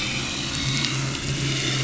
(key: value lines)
label: anthrophony, boat engine
recorder: SoundTrap 500